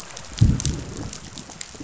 {"label": "biophony, growl", "recorder": "SoundTrap 500"}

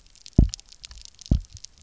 {"label": "biophony, double pulse", "recorder": "SoundTrap 300"}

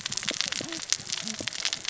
{"label": "biophony, cascading saw", "recorder": "SoundTrap 600 or HydroMoth"}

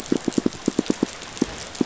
{"label": "biophony, pulse", "recorder": "SoundTrap 500"}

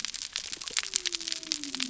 {"label": "biophony", "recorder": "SoundTrap 300"}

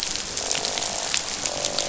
{"label": "biophony, croak", "recorder": "SoundTrap 500"}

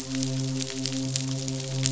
{"label": "biophony, midshipman", "recorder": "SoundTrap 500"}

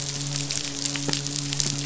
{"label": "biophony, midshipman", "recorder": "SoundTrap 500"}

